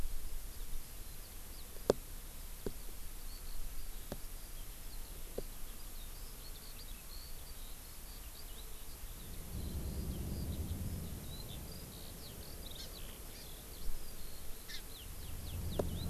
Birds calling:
Eurasian Skylark (Alauda arvensis), Hawaii Amakihi (Chlorodrepanis virens)

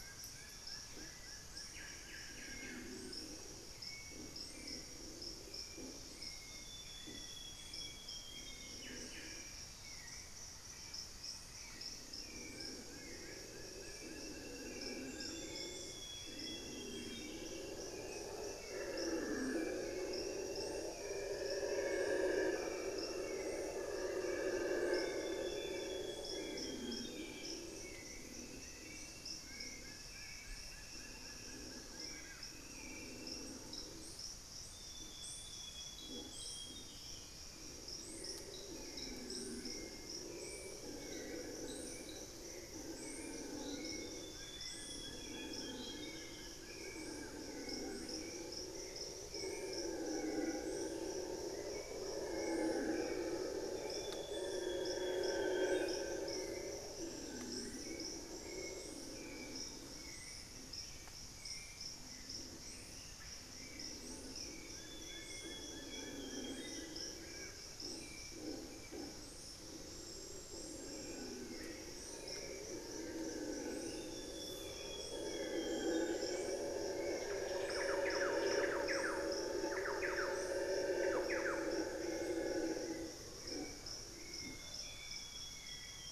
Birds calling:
Plain-winged Antshrike (Thamnophilus schistaceus), unidentified bird, Solitary Black Cacique (Cacicus solitarius), Amazonian Grosbeak (Cyanoloxia rothschildii), Hauxwell's Thrush (Turdus hauxwelli), Thrush-like Wren (Campylorhynchus turdinus)

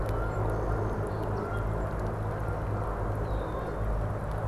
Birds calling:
Song Sparrow (Melospiza melodia), Canada Goose (Branta canadensis), Red-winged Blackbird (Agelaius phoeniceus)

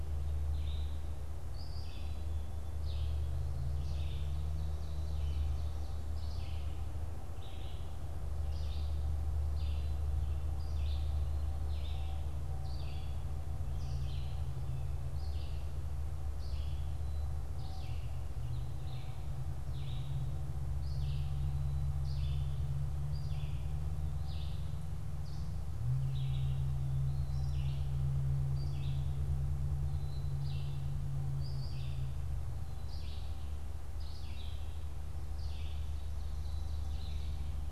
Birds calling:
Black-capped Chickadee (Poecile atricapillus), Ovenbird (Seiurus aurocapilla), Red-eyed Vireo (Vireo olivaceus)

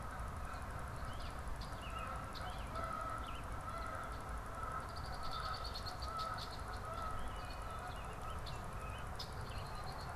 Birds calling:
Red-winged Blackbird (Agelaius phoeniceus), Canada Goose (Branta canadensis)

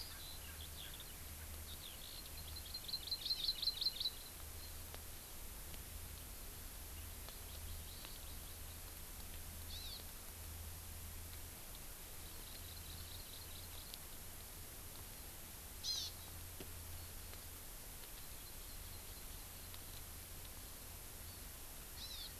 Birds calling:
Eurasian Skylark (Alauda arvensis), Hawaii Amakihi (Chlorodrepanis virens), Erckel's Francolin (Pternistis erckelii)

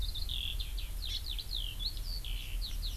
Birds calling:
Hawaii Amakihi (Chlorodrepanis virens), Eurasian Skylark (Alauda arvensis)

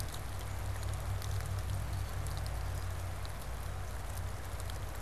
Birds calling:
Black-capped Chickadee (Poecile atricapillus)

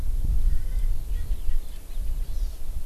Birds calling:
Erckel's Francolin (Pternistis erckelii), Hawaii Amakihi (Chlorodrepanis virens)

